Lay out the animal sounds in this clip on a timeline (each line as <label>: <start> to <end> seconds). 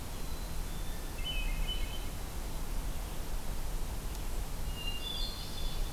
Black-capped Chickadee (Poecile atricapillus): 0.0 to 1.2 seconds
Hermit Thrush (Catharus guttatus): 0.6 to 2.2 seconds
Hermit Thrush (Catharus guttatus): 4.6 to 5.9 seconds